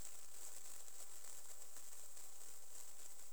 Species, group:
Platycleis albopunctata
Orthoptera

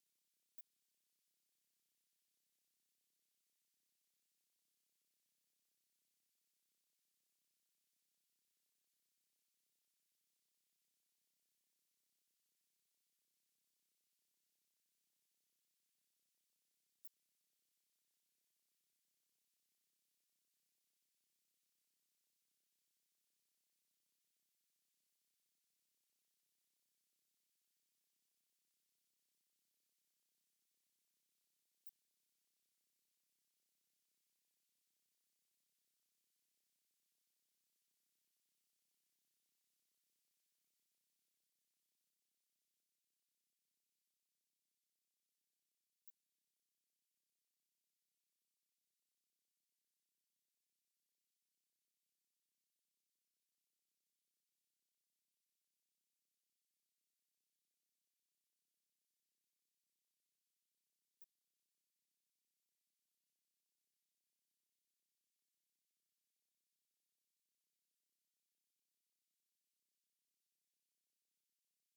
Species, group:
Odontura aspericauda
Orthoptera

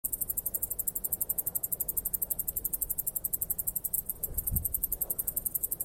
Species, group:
Tettigettalna argentata
Cicadidae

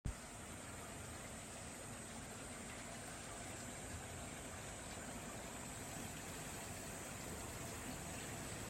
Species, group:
Platypleura kaempferi
Cicadidae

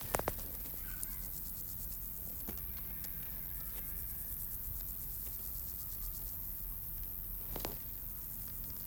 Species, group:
Roeseliana roeselii
Orthoptera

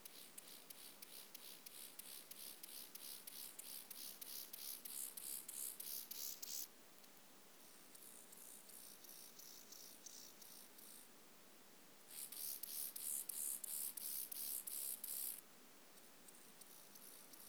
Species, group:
Chorthippus mollis
Orthoptera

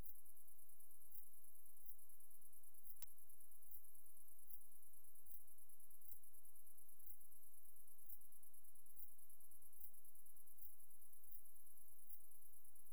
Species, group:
Leptophyes punctatissima
Orthoptera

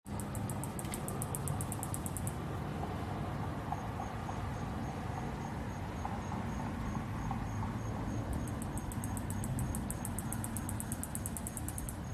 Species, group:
Microcentrum rhombifolium
Orthoptera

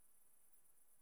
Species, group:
Tettigonia viridissima
Orthoptera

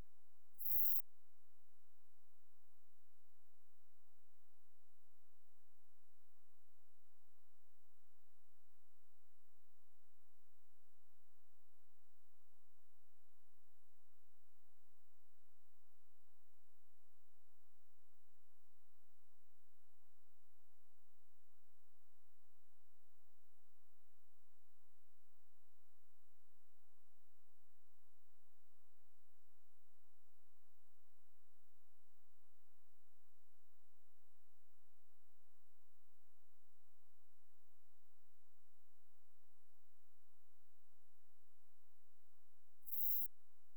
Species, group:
Eupholidoptera forcipata
Orthoptera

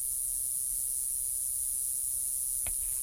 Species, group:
Okanagana tristis
Cicadidae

